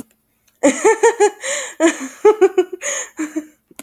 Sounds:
Laughter